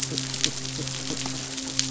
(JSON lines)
{"label": "biophony", "recorder": "SoundTrap 500"}
{"label": "biophony, midshipman", "recorder": "SoundTrap 500"}